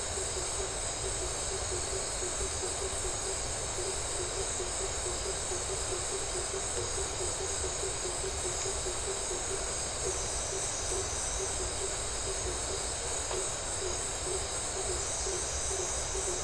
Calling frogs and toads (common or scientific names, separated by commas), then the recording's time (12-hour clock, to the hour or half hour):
blacksmith tree frog
9pm